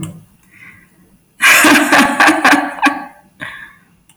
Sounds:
Laughter